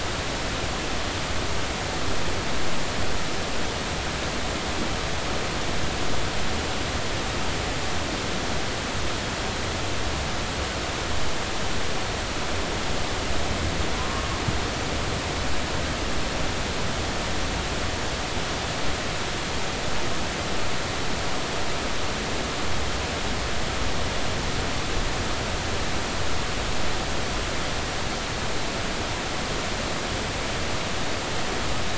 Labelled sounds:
14.0	14.3	humpback whale, 0.96 to 1.1 kHz

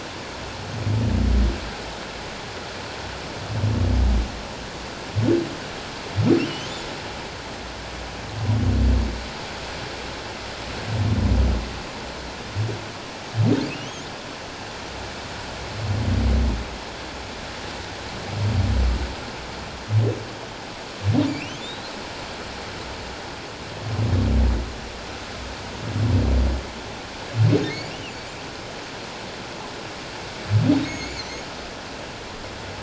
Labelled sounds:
6.4	6.7	humpback whale, 2.6 to 3.2 kHz
13.6	14.0	humpback whale, 2.1 to 3.4 kHz
21.3	21.9	humpback whale, 2.2 to 4.2 kHz
27.7	27.9	humpback whale, 2.0 to 4.8 kHz
30.8	31.4	humpback whale, 2.1 to 6.7 kHz

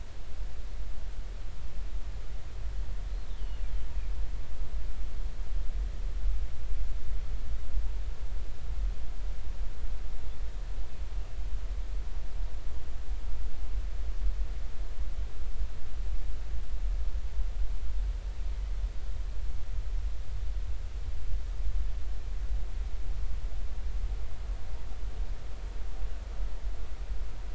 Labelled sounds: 3.4	3.6	killer whale, northern resident, G clan, GG subclan, 2.6 to 3.1 kHz

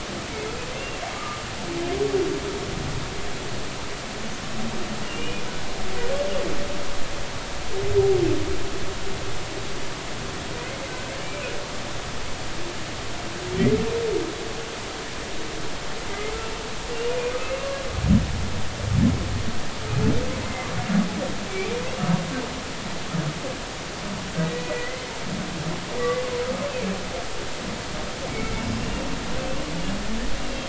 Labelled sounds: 0.7	1.4	humpback whale, 1.2 to 2.8 kHz
5.0	5.5	humpback whale, 2.3 to 3.0 kHz
16.1	16.3	humpback whale, 2.0 to 2.2 kHz
17.4	17.8	humpback whale, 1.1 to 2.8 kHz
20.4	20.7	humpback whale, 2.0 to 2.1 kHz
24.4	25.1	humpback whale, 1.9 to 2.1 kHz
26.0	26.2	humpback whale, 1.9 to 2.0 kHz

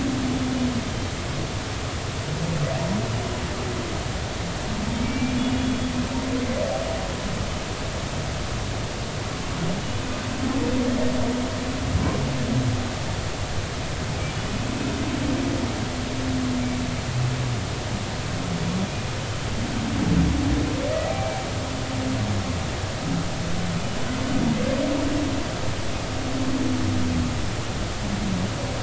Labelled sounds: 5.0	5.9	humpback whale, 2.2 to 3.5 kHz
21.1	21.4	humpback whale, 2.3 to 2.4 kHz

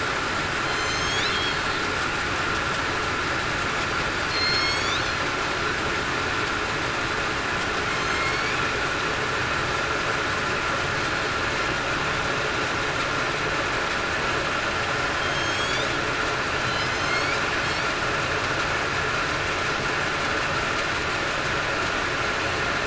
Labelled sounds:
0.6	1.8	killer whale, southern resident, 3.1 to 6.8 kHz
4.3	4.9	killer whale, southern resident, 2.1 to 7.1 kHz
8.1	8.5	killer whale, southern resident, 2.1 to 2.3 kHz
15.1	15.9	killer whale, southern resident, 3.1 to 8.0 kHz
16.9	17.3	killer whale, southern resident, 4.1 to 4.6 kHz

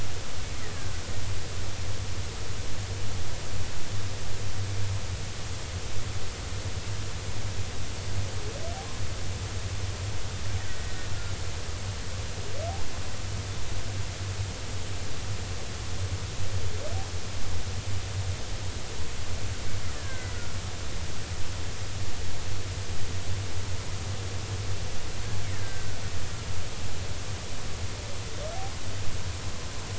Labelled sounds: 19.9	20.4	killer whale, Bigg's (transient), 1.5 to 2.1 kHz
25.5	25.9	killer whale, Bigg's (transient), 1.5 to 1.9 kHz

